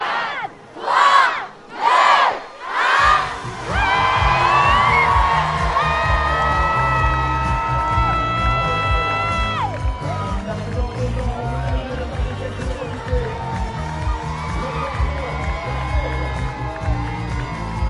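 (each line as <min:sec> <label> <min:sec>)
0:00.0 People are counting down together. 0:03.4
0:03.6 Multiple people cheering with music playing in the background. 0:17.9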